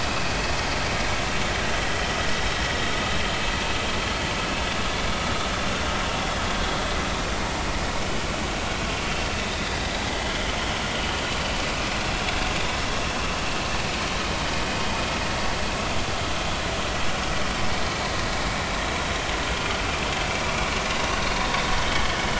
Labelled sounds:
21.8	22.2	vessel noise, 3.0 to 3.2 kHz

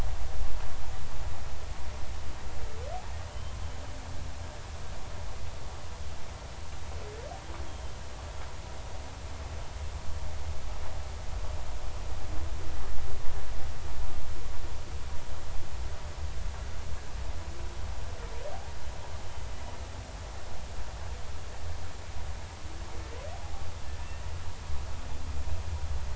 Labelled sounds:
3.3	3.6	humpback whale, 2.9 to 3.2 kHz

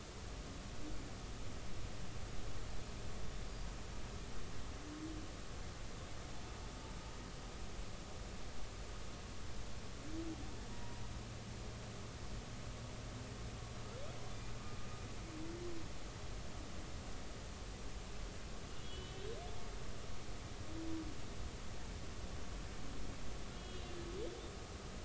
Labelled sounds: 10.7	11.0	humpback whale, 0.90 to 0.99 kHz
18.8	19.2	humpback whale, 2.9 to 3.4 kHz
23.5	24.0	humpback whale, 2.8 to 3.4 kHz

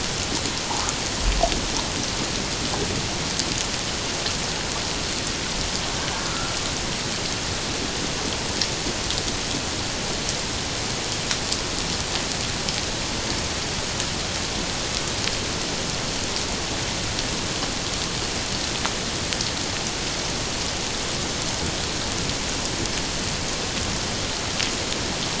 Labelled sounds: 6.3	6.5	humpback whale, 1.2 to 1.4 kHz

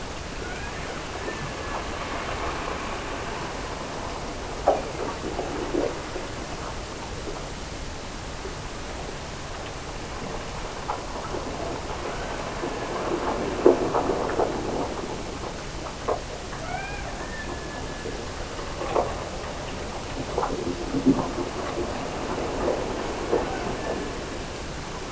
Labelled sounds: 0.4	1.8	killer whale, Bigg's (transient), Gulf of Alaska transient, 1.3 to 2.5 kHz
4.6	5.4	killer whale, Bigg's (transient), Gulf of Alaska transient, 1.7 to 2.6 kHz
12.0	13.1	killer whale, Bigg's (transient), Gulf of Alaska transient, 1.2 to 2.3 kHz
16.5	18.3	killer whale, Bigg's (transient), Gulf of Alaska transient, 0.44 to 2.5 kHz
23.4	24.4	killer whale, Bigg's (transient), Gulf of Alaska transient, 1.2 to 1.8 kHz

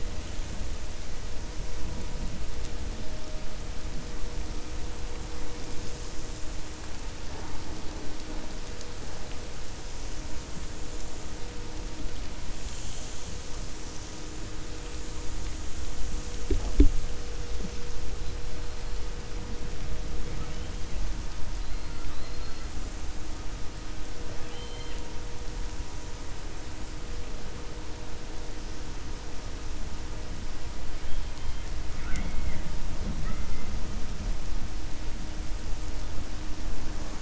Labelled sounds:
24.3	25.0	killer whale, 1.7 to 4.2 kHz

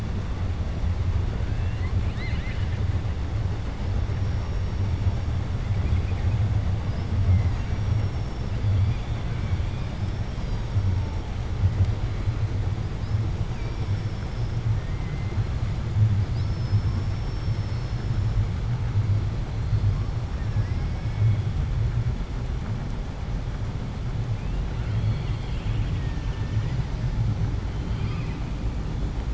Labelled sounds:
7.2	7.7	killer whale, 0.65 to 2.8 kHz
14.8	15.3	killer whale, 1.5 to 2.2 kHz
20.3	21.4	killer whale, 0.86 to 2.8 kHz

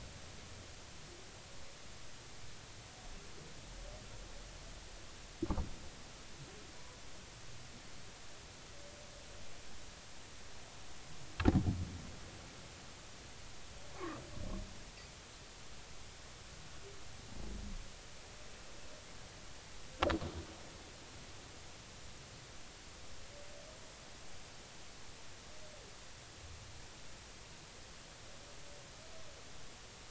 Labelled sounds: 6.7	7.0	humpback whale, 0.93 to 1.0 kHz
13.9	14.2	humpback whale, 1.0 to 1.3 kHz

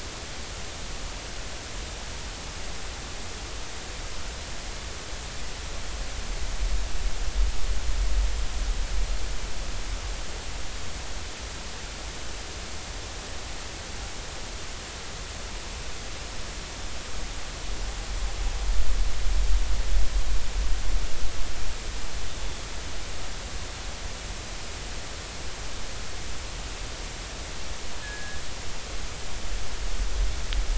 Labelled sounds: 28.0	28.4	killer whale, northern resident, G clan, 1.6 to 1.8 kHz

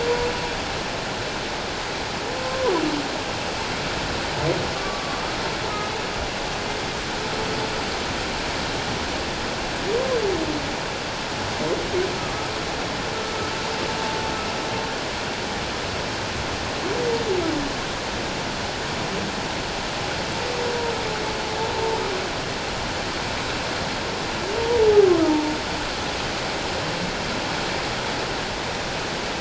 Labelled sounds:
4.8	5.4	humpback whale, 1.1 to 1.3 kHz
21.7	22.0	humpback whale, 0.88 to 0.97 kHz
25.2	25.5	humpback whale, 0.81 to 0.97 kHz

